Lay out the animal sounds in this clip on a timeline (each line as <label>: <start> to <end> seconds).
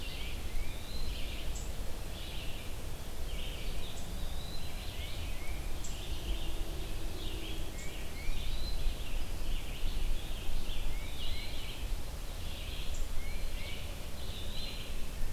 Red-eyed Vireo (Vireo olivaceus): 0.0 to 15.2 seconds
Tufted Titmouse (Baeolophus bicolor): 0.0 to 1.1 seconds
Eastern Wood-Pewee (Contopus virens): 3.3 to 5.1 seconds
Tufted Titmouse (Baeolophus bicolor): 4.6 to 5.8 seconds
Tufted Titmouse (Baeolophus bicolor): 7.6 to 8.5 seconds
Eastern Wood-Pewee (Contopus virens): 8.1 to 8.9 seconds
Tufted Titmouse (Baeolophus bicolor): 10.9 to 11.9 seconds
Tufted Titmouse (Baeolophus bicolor): 13.1 to 14.0 seconds
Eastern Wood-Pewee (Contopus virens): 14.1 to 15.1 seconds